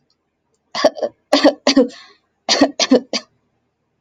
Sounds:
Cough